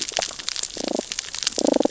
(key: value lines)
label: biophony, damselfish
recorder: SoundTrap 600 or HydroMoth